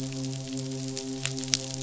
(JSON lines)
{"label": "biophony, midshipman", "recorder": "SoundTrap 500"}